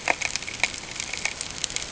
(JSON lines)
{"label": "ambient", "recorder": "HydroMoth"}